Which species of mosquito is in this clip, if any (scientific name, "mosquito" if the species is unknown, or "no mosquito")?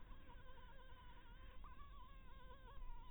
Anopheles harrisoni